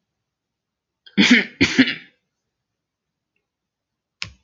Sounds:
Throat clearing